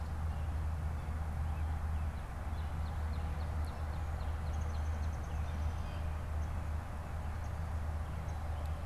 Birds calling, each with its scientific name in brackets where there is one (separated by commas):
Northern Cardinal (Cardinalis cardinalis), Downy Woodpecker (Dryobates pubescens)